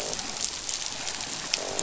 {"label": "biophony, croak", "recorder": "SoundTrap 500"}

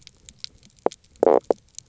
{"label": "biophony, knock croak", "recorder": "SoundTrap 300"}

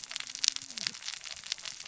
{"label": "biophony, cascading saw", "recorder": "SoundTrap 600 or HydroMoth"}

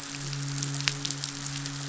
{"label": "biophony, midshipman", "recorder": "SoundTrap 500"}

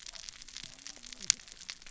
{"label": "biophony, cascading saw", "recorder": "SoundTrap 600 or HydroMoth"}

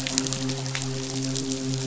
{"label": "biophony, midshipman", "recorder": "SoundTrap 500"}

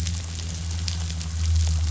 {"label": "anthrophony, boat engine", "recorder": "SoundTrap 500"}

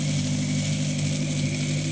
{"label": "anthrophony, boat engine", "recorder": "HydroMoth"}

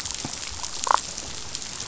{"label": "biophony, damselfish", "recorder": "SoundTrap 500"}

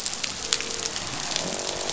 {"label": "biophony, croak", "recorder": "SoundTrap 500"}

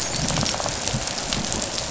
{"label": "biophony, rattle response", "recorder": "SoundTrap 500"}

